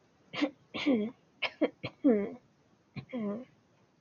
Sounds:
Throat clearing